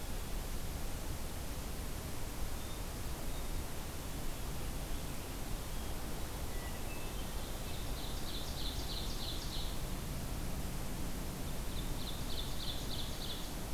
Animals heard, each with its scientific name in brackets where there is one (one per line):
Ovenbird (Seiurus aurocapilla)
Hermit Thrush (Catharus guttatus)